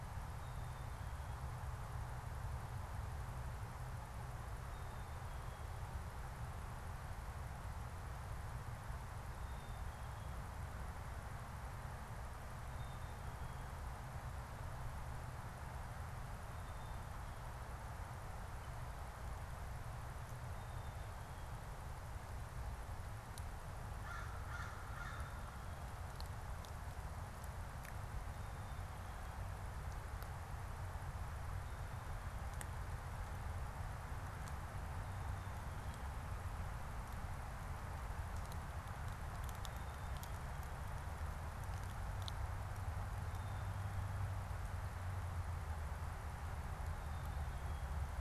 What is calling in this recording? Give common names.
Black-capped Chickadee, American Crow